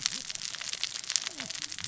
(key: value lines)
label: biophony, cascading saw
recorder: SoundTrap 600 or HydroMoth